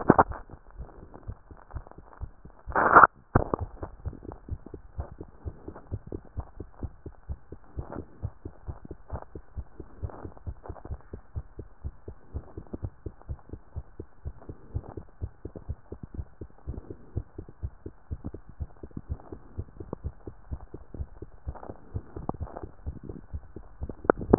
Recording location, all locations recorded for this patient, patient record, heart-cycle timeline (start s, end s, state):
tricuspid valve (TV)
aortic valve (AV)+pulmonary valve (PV)+tricuspid valve (TV)+mitral valve (MV)
#Age: Child
#Sex: Female
#Height: 114.0 cm
#Weight: 25.8 kg
#Pregnancy status: False
#Murmur: Absent
#Murmur locations: nan
#Most audible location: nan
#Systolic murmur timing: nan
#Systolic murmur shape: nan
#Systolic murmur grading: nan
#Systolic murmur pitch: nan
#Systolic murmur quality: nan
#Diastolic murmur timing: nan
#Diastolic murmur shape: nan
#Diastolic murmur grading: nan
#Diastolic murmur pitch: nan
#Diastolic murmur quality: nan
#Outcome: Normal
#Campaign: 2014 screening campaign
0.00	4.88	unannotated
4.88	4.96	diastole
4.96	5.08	S1
5.08	5.20	systole
5.20	5.28	S2
5.28	5.44	diastole
5.44	5.56	S1
5.56	5.66	systole
5.66	5.76	S2
5.76	5.90	diastole
5.90	6.02	S1
6.02	6.12	systole
6.12	6.22	S2
6.22	6.36	diastole
6.36	6.46	S1
6.46	6.58	systole
6.58	6.66	S2
6.66	6.82	diastole
6.82	6.92	S1
6.92	7.04	systole
7.04	7.14	S2
7.14	7.28	diastole
7.28	7.38	S1
7.38	7.50	systole
7.50	7.60	S2
7.60	7.76	diastole
7.76	7.86	S1
7.86	7.96	systole
7.96	8.06	S2
8.06	8.22	diastole
8.22	8.32	S1
8.32	8.44	systole
8.44	8.52	S2
8.52	8.66	diastole
8.66	8.78	S1
8.78	8.88	systole
8.88	8.96	S2
8.96	9.12	diastole
9.12	9.22	S1
9.22	9.34	systole
9.34	9.42	S2
9.42	9.56	diastole
9.56	9.66	S1
9.66	9.78	systole
9.78	9.86	S2
9.86	10.02	diastole
10.02	10.12	S1
10.12	10.22	systole
10.22	10.32	S2
10.32	10.46	diastole
10.46	10.56	S1
10.56	10.68	systole
10.68	10.76	S2
10.76	10.90	diastole
10.90	11.00	S1
11.00	11.12	systole
11.12	11.20	S2
11.20	11.36	diastole
11.36	11.46	S1
11.46	11.58	systole
11.58	11.68	S2
11.68	11.84	diastole
11.84	11.94	S1
11.94	12.08	systole
12.08	12.16	S2
12.16	12.34	diastole
12.34	12.44	S1
12.44	12.56	systole
12.56	12.66	S2
12.66	12.82	diastole
12.82	12.92	S1
12.92	13.04	systole
13.04	13.14	S2
13.14	13.28	diastole
13.28	13.38	S1
13.38	13.52	systole
13.52	13.60	S2
13.60	13.76	diastole
13.76	13.86	S1
13.86	13.98	systole
13.98	14.06	S2
14.06	14.24	diastole
14.24	14.36	S1
14.36	14.48	systole
14.48	14.56	S2
14.56	14.74	diastole
14.74	14.84	S1
14.84	14.96	systole
14.96	15.04	S2
15.04	15.22	diastole
15.22	15.32	S1
15.32	15.44	systole
15.44	15.52	S2
15.52	15.68	diastole
15.68	15.78	S1
15.78	15.90	systole
15.90	15.98	S2
15.98	16.16	diastole
16.16	16.26	S1
16.26	16.40	systole
16.40	16.48	S2
16.48	16.68	diastole
16.68	16.80	S1
16.80	16.90	systole
16.90	16.98	S2
16.98	17.14	diastole
17.14	17.26	S1
17.26	17.38	systole
17.38	17.46	S2
17.46	17.62	diastole
17.62	17.72	S1
17.72	17.84	systole
17.84	17.94	S2
17.94	18.10	diastole
18.10	18.20	S1
18.20	18.32	systole
18.32	18.40	S2
18.40	18.60	diastole
18.60	18.70	S1
18.70	18.82	systole
18.82	18.90	S2
18.90	19.08	diastole
19.08	19.20	S1
19.20	19.32	systole
19.32	19.40	S2
19.40	19.56	diastole
19.56	19.68	S1
19.68	19.78	systole
19.78	19.88	S2
19.88	20.04	diastole
20.04	20.14	S1
20.14	20.26	systole
20.26	20.34	S2
20.34	20.50	diastole
20.50	20.62	S1
20.62	20.72	systole
20.72	20.80	S2
20.80	20.98	diastole
20.98	21.08	S1
21.08	21.20	systole
21.20	21.28	S2
21.28	21.46	diastole
21.46	21.56	S1
21.56	21.68	systole
21.68	21.78	S2
21.78	21.96	diastole
21.96	22.04	S1
22.04	22.16	systole
22.16	22.28	S2
22.28	22.40	diastole
22.40	22.50	S1
22.50	22.62	systole
22.62	22.70	S2
22.70	22.86	diastole
22.86	22.98	S1
22.98	23.08	systole
23.08	23.18	S2
23.18	23.34	diastole
23.34	23.44	S1
23.44	23.56	systole
23.56	23.66	S2
23.66	23.82	diastole
23.82	24.38	unannotated